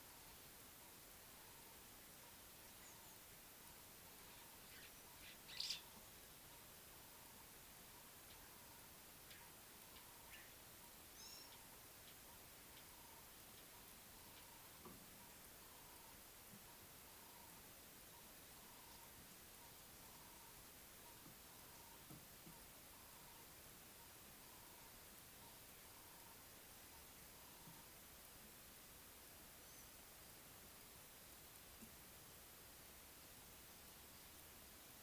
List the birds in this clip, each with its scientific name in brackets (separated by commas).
Gray-backed Camaroptera (Camaroptera brevicaudata), White-browed Sparrow-Weaver (Plocepasser mahali)